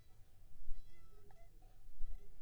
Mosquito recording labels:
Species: Anopheles funestus s.s.; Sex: female; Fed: unfed; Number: one; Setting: cup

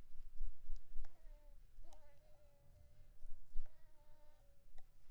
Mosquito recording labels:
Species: Anopheles coustani; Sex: female; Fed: blood-fed; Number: one; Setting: cup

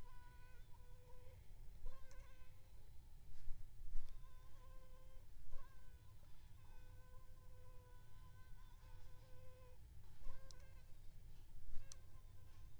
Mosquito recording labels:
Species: Aedes aegypti; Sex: female; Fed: unfed; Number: one; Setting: cup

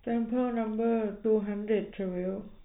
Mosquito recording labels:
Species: no mosquito; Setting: cup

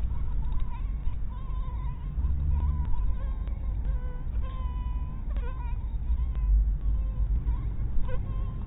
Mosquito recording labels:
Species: mosquito; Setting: cup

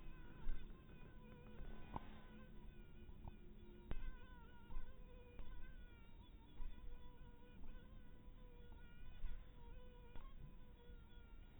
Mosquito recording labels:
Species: mosquito; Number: one; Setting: cup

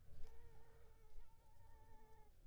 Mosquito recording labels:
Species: Anopheles arabiensis; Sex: female; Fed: unfed; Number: one; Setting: cup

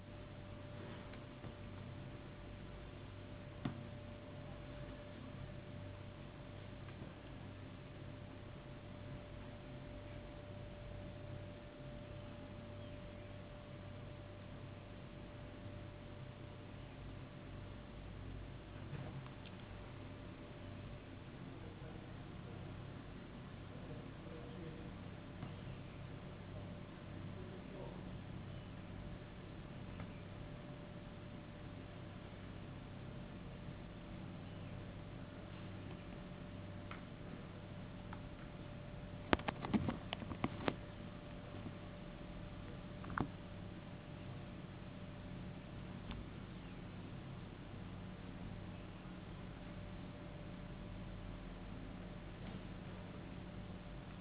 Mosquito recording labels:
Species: no mosquito; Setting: insect culture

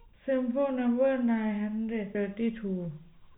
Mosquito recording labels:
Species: no mosquito; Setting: cup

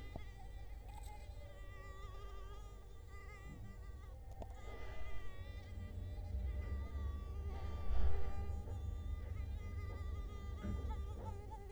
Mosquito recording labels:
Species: Culex quinquefasciatus; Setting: cup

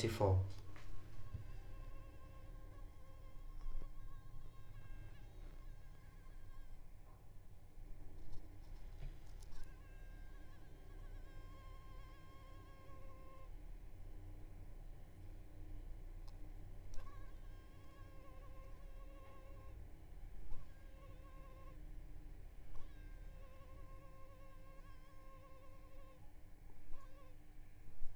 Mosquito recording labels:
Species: Culex pipiens complex; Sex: female; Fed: unfed; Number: one; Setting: cup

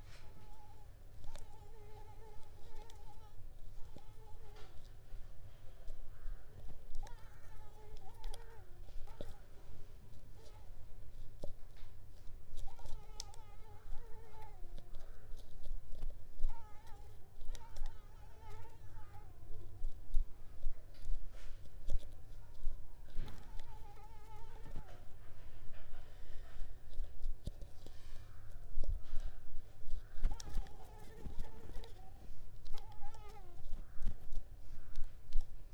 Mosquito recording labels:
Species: Mansonia uniformis; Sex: female; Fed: unfed; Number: one; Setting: cup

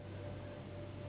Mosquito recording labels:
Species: Anopheles gambiae s.s.; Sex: female; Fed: unfed; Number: one; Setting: insect culture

